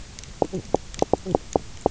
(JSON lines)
{"label": "biophony, knock croak", "recorder": "SoundTrap 300"}